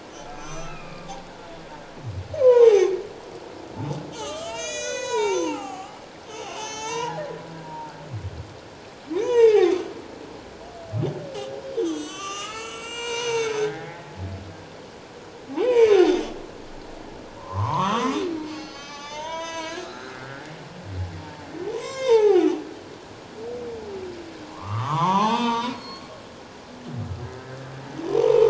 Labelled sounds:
0.4	1.2	humpback whale, 1.0 to 6.3 kHz
2.3	2.9	humpback whale, 0.78 to 6.5 kHz
4.1	5.9	humpback whale, 0.78 to 8.0 kHz
6.5	7.2	humpback whale, 0.78 to 7.9 kHz
7.6	7.9	humpback whale, 0.88 to 0.97 kHz
9.1	9.8	humpback whale, 0.78 to 6.5 kHz
11.7	14.1	humpback whale, 0.78 to 7.9 kHz
15.5	16.0	humpback whale, 0.78 to 5.1 kHz
17.4	18.2	humpback whale, 0.84 to 6.4 kHz
18.4	20.4	humpback whale, 0.81 to 7.6 kHz
21.2	22.6	humpback whale, 0.78 to 7.8 kHz
24.5	26.1	humpback whale, 0.78 to 6.3 kHz
28.0	28.4	humpback whale, 0.84 to 1.1 kHz

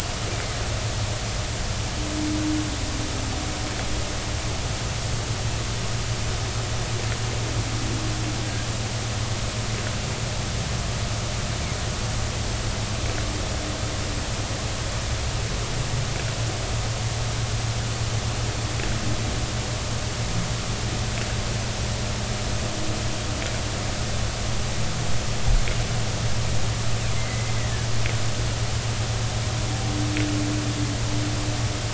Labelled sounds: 27.2	27.5	humpback whale, 2.0 to 2.1 kHz

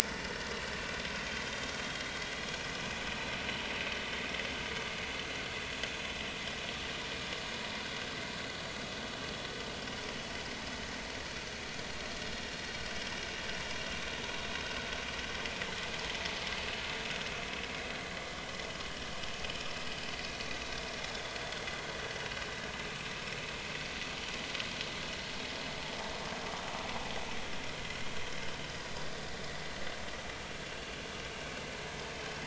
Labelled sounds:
0.2	0.5	vessel noise, 1.4 to 1.5 kHz
28.6	29.0	vessel noise, 4.8 to 5.1 kHz

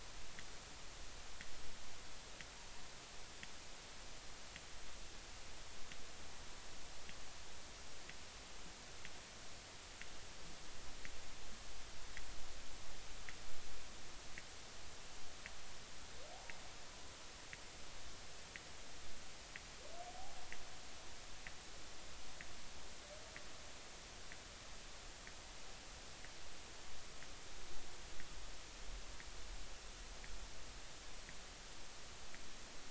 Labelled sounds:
20.1	20.4	humpback whale, 0.80 to 0.86 kHz

